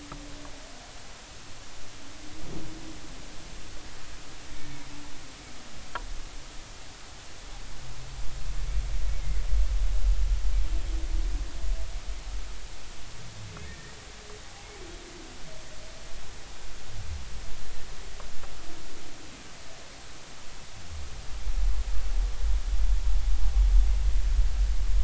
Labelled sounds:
9.1	9.4	humpback whale, 1.9 to 2.3 kHz
13.6	13.9	humpback whale, 1.6 to 1.9 kHz

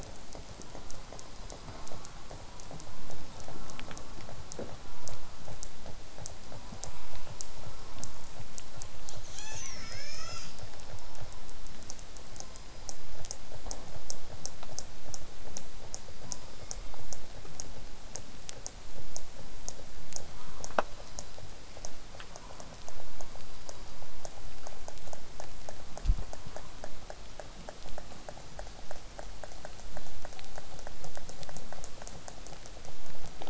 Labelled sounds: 0.6	1.2	killer whale, southern resident, J pod, call S04, 0.27 to 1.5 kHz
1.7	2.3	killer whale, southern resident, J pod, call S04, 0.19 to 1.5 kHz
3.5	4.3	killer whale, southern resident, J pod, call S04, 0.12 to 1.5 kHz
4.7	5.3	killer whale, southern resident, J pod, call S04, 0.27 to 1.5 kHz
7.8	8.3	killer whale, southern resident, J pod, call S04, 0.12 to 1.5 kHz
9.3	10.6	killer whale, southern resident, 0.20 to 8.0 kHz
20.3	20.6	killer whale, southern resident, 0.73 to 1.6 kHz

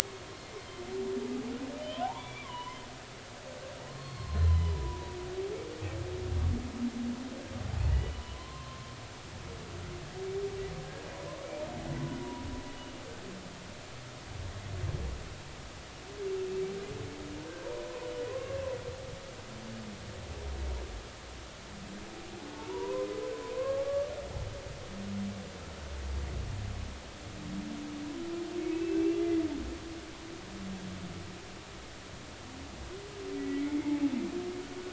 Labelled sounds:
1.8	2.8	humpback whale, 0.80 to 3.6 kHz
3.9	5.2	humpback whale, 0.93 to 4.4 kHz
7.9	9.0	humpback whale, 0.93 to 3.0 kHz
12.2	13.0	humpback whale, 0.90 to 3.0 kHz
17.6	18.6	humpback whale, 0.86 to 1.1 kHz
22.5	24.1	humpback whale, 0.83 to 1.2 kHz
28.6	29.4	humpback whale, 2.0 to 2.8 kHz
33.4	33.7	humpback whale, 1.9 to 2.1 kHz

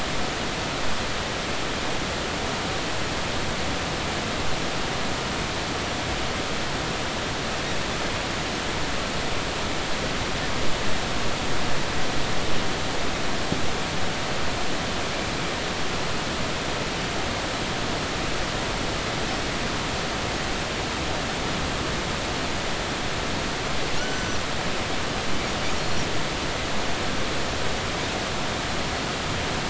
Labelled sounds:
24.0	24.4	Pacific white-sided dolphin, 1.4 to 6.1 kHz
25.8	26.0	Pacific white-sided dolphin, 4.2 to 4.4 kHz

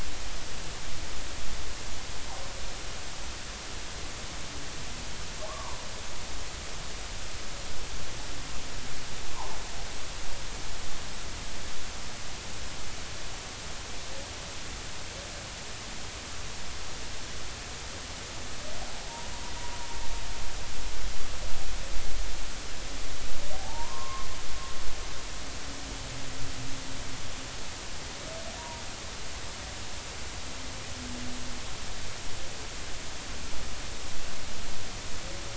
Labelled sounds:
5.5	5.8	humpback whale, 0.90 to 1.2 kHz
9.3	9.6	humpback whale, 0.80 to 1.1 kHz
23.5	24.3	humpback whale, 0.80 to 1.1 kHz
28.6	28.8	humpback whale, 0.90 to 0.99 kHz

